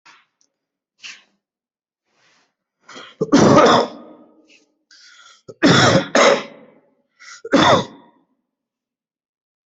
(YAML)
expert_labels:
- quality: ok
  cough_type: dry
  dyspnea: false
  wheezing: false
  stridor: false
  choking: false
  congestion: false
  nothing: true
  diagnosis: lower respiratory tract infection
  severity: mild
gender: female
respiratory_condition: false
fever_muscle_pain: false
status: COVID-19